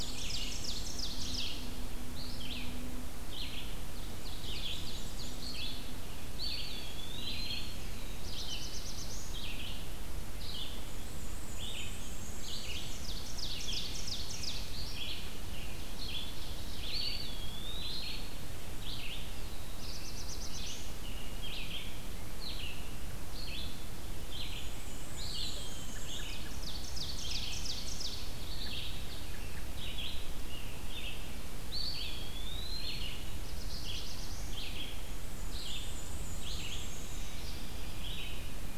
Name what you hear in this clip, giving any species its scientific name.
Mniotilta varia, Seiurus aurocapilla, Vireo olivaceus, Contopus virens, Setophaga caerulescens